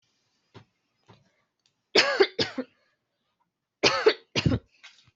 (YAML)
expert_labels:
- quality: good
  cough_type: unknown
  dyspnea: false
  wheezing: false
  stridor: false
  choking: false
  congestion: false
  nothing: true
  diagnosis: upper respiratory tract infection
  severity: mild
age: 19
gender: female
respiratory_condition: true
fever_muscle_pain: false
status: COVID-19